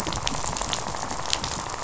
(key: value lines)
label: biophony, rattle
recorder: SoundTrap 500